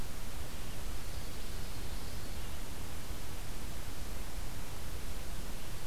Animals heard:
forest ambience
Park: Marsh-Billings-Rockefeller National Historical Park